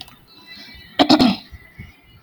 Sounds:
Throat clearing